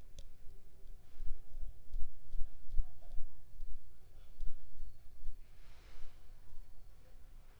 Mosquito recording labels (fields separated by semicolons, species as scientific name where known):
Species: Culex pipiens complex; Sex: female; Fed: unfed; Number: one; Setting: cup